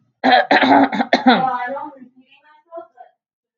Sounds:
Throat clearing